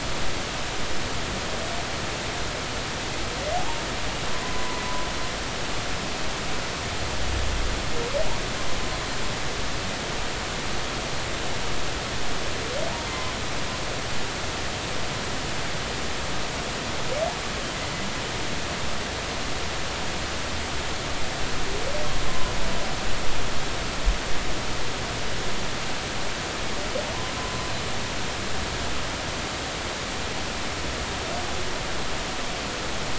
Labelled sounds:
3.6	4.8	humpback whale, 0.80 to 1.1 kHz
13.1	13.3	humpback whale, 2.0 to 2.1 kHz
22.3	22.5	humpback whale, 0.96 to 1.1 kHz

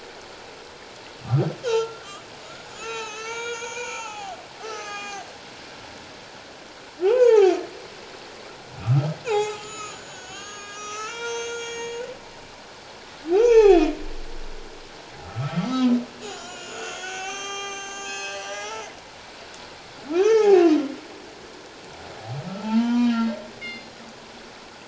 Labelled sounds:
1.6	2.1	humpback whale, 0.84 to 1.7 kHz
2.4	5.3	humpback whale, 0.78 to 7.1 kHz
7.0	7.5	humpback whale, 0.78 to 2.9 kHz
8.8	12.0	humpback whale, 0.78 to 7.7 kHz
13.3	13.9	humpback whale, 0.78 to 6.1 kHz
15.2	18.9	humpback whale, 0.78 to 8.0 kHz
18.0	18.5	killer whale, northern resident, G clan, call N24ii, 2.5 to 4.3 kHz
20.1	20.7	humpback whale, 0.78 to 5.4 kHz
22.6	23.4	humpback whale, 0.81 to 3.2 kHz
23.6	23.9	killer whale, northern resident, G clan, call N24ii, 2.0 to 5.0 kHz

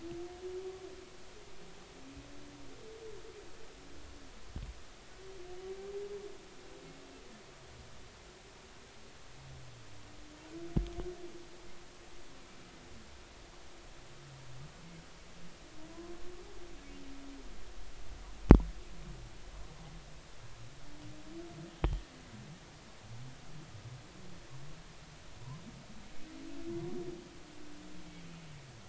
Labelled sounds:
21.7	22.0	humpback whale, 3.1 to 3.2 kHz

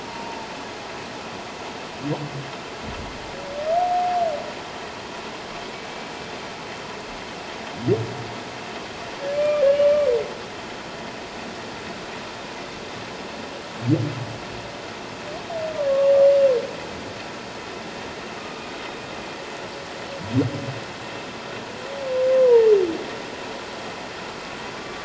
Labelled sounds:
0.0	0.5	humpback whale, 0.81 to 1.0 kHz
5.7	6.1	humpback whale, 2.2 to 2.3 kHz
9.3	10.1	humpback whale, 1.1 to 2.9 kHz
18.4	18.7	humpback whale, 1.1 to 1.3 kHz
22.4	22.7	humpback whale, 0.84 to 1.1 kHz

